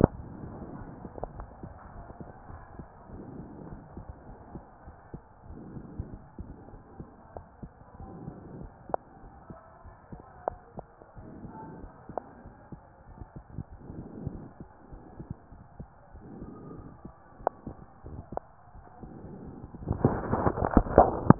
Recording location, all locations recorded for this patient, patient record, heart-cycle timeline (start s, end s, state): aortic valve (AV)
aortic valve (AV)+pulmonary valve (PV)+tricuspid valve (TV)
#Age: nan
#Sex: Female
#Height: nan
#Weight: nan
#Pregnancy status: True
#Murmur: Absent
#Murmur locations: nan
#Most audible location: nan
#Systolic murmur timing: nan
#Systolic murmur shape: nan
#Systolic murmur grading: nan
#Systolic murmur pitch: nan
#Systolic murmur quality: nan
#Diastolic murmur timing: nan
#Diastolic murmur shape: nan
#Diastolic murmur grading: nan
#Diastolic murmur pitch: nan
#Diastolic murmur quality: nan
#Outcome: Normal
#Campaign: 2015 screening campaign
0.00	3.12	unannotated
3.12	3.29	S1
3.29	3.40	systole
3.40	3.54	S2
3.54	3.76	diastole
3.76	3.90	S1
3.90	4.05	systole
4.05	4.16	S2
4.16	5.01	unannotated
5.01	5.11	S1
5.11	5.26	systole
5.26	5.39	S2
5.39	5.63	diastole
5.63	5.75	S1
5.75	5.91	systole
5.91	6.02	S2
6.02	6.29	diastole
6.29	6.39	S1
6.39	6.55	systole
6.55	6.65	S2
6.65	6.90	diastole
6.90	7.03	S1
7.03	7.16	systole
7.16	7.28	S2
7.28	7.53	diastole
7.53	7.61	S1
7.61	7.78	systole
7.78	7.87	S2
7.87	8.13	diastole
8.13	8.24	S1
8.24	8.40	systole
8.40	8.54	S2
8.54	8.78	diastole
8.78	8.89	S1
8.89	9.04	systole
9.04	9.15	S2
9.15	21.39	unannotated